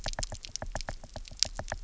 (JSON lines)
{"label": "biophony, knock", "recorder": "SoundTrap 300"}